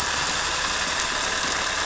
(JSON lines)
{"label": "anthrophony, boat engine", "recorder": "SoundTrap 300"}